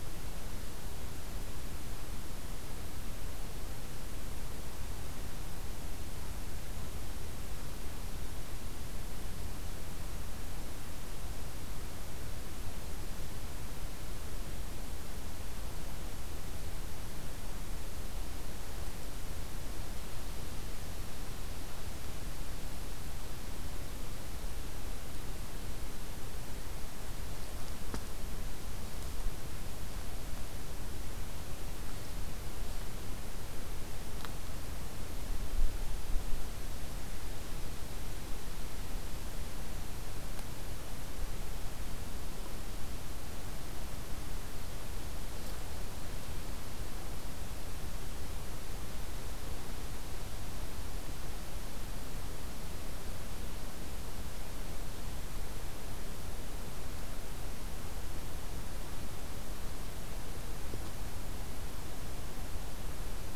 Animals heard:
forest ambience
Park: Acadia National Park